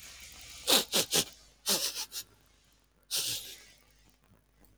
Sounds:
Sniff